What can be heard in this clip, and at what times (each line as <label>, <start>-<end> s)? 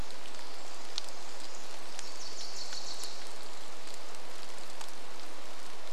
Pacific Wren song, 0-4 s
rain, 0-6 s
Wilson's Warbler song, 2-4 s